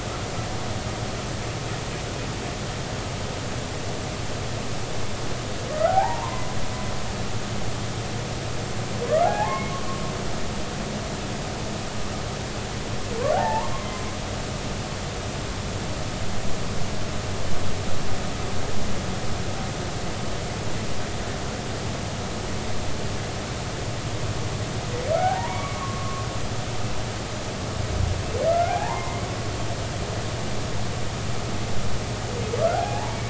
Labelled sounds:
5.7	6.4	humpback whale, 0.80 to 1.6 kHz
9.1	9.7	humpback whale, 0.80 to 2.2 kHz
13.3	14.1	humpback whale, 0.80 to 2.2 kHz
25.1	26.3	humpback whale, 0.80 to 2.3 kHz
28.5	29.2	humpback whale, 0.80 to 2.2 kHz
32.7	33.2	humpback whale, 0.80 to 2.3 kHz

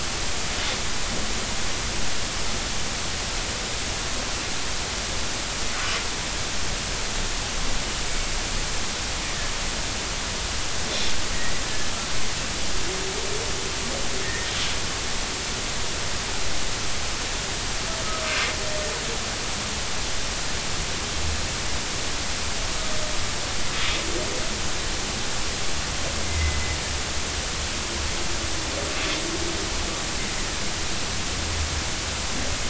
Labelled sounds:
14.2	14.5	humpback whale, 1.7 to 2.1 kHz
26.2	26.6	humpback whale, 2.0 to 2.2 kHz

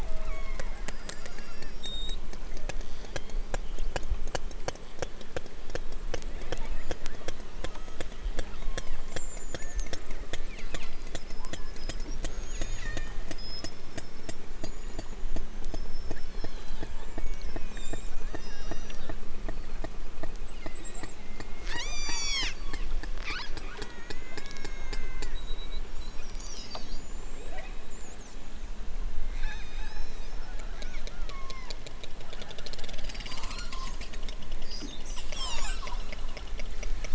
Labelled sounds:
0.0	2.0	killer whale, southern Alaska resident, 0.23 to 6.4 kHz
2.4	3.6	killer whale, southern Alaska resident, 1.5 to 6.1 kHz
6.4	8.1	killer whale, southern Alaska resident, 0.87 to 7.0 kHz
8.6	9.1	killer whale, southern Alaska resident, 1.1 to 3.8 kHz
9.5	9.9	killer whale, southern Alaska resident, 1.1 to 2.4 kHz
10.5	11.2	killer whale, southern Alaska resident, 1.2 to 5.1 kHz
12.4	13.1	killer whale, southern Alaska resident, 1.3 to 6.6 kHz
18.2	19.0	killer whale, southern Alaska resident, 1.3 to 6.4 kHz
20.5	21.2	killer whale, southern Alaska resident, 1.1 to 4.5 kHz
21.6	25.4	killer whale, southern Alaska resident, 0.46 to 8.0 kHz
27.3	28.0	killer whale, southern Alaska resident, 1.5 to 4.3 kHz
29.3	31.8	killer whale, southern Alaska resident, 0.73 to 8.0 kHz

